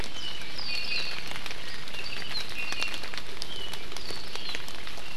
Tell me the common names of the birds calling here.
Iiwi, Apapane